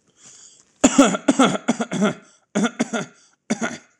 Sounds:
Cough